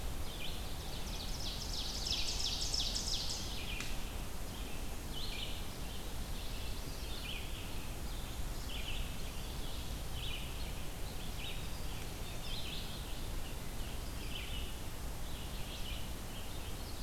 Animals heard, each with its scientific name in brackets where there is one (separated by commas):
Red-eyed Vireo (Vireo olivaceus), Black-throated Blue Warbler (Setophaga caerulescens), Ovenbird (Seiurus aurocapilla)